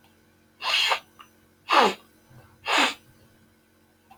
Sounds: Sniff